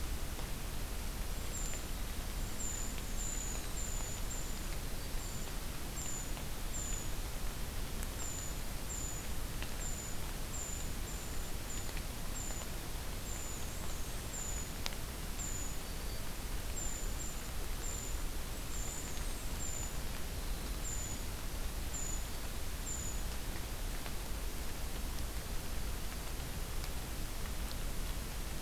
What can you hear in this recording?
Brown Creeper, Black-and-white Warbler